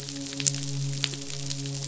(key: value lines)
label: biophony, midshipman
recorder: SoundTrap 500